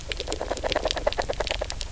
{"label": "biophony, knock croak", "recorder": "SoundTrap 300"}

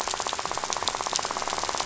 {"label": "biophony, rattle", "recorder": "SoundTrap 500"}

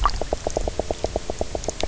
{"label": "biophony, knock croak", "recorder": "SoundTrap 300"}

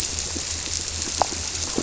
{"label": "biophony", "recorder": "SoundTrap 300"}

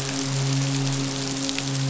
{"label": "biophony, midshipman", "recorder": "SoundTrap 500"}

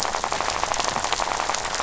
{"label": "biophony, rattle", "recorder": "SoundTrap 500"}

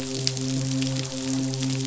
{"label": "biophony, midshipman", "recorder": "SoundTrap 500"}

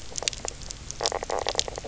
{"label": "biophony, knock croak", "recorder": "SoundTrap 300"}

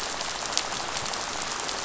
{"label": "biophony, rattle", "recorder": "SoundTrap 500"}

